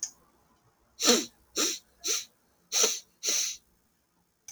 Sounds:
Sniff